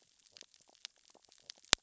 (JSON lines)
{"label": "biophony, stridulation", "recorder": "SoundTrap 600 or HydroMoth"}